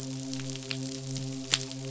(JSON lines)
{"label": "biophony, midshipman", "recorder": "SoundTrap 500"}